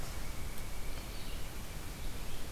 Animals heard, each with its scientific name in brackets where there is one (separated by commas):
Pileated Woodpecker (Dryocopus pileatus), Red-eyed Vireo (Vireo olivaceus)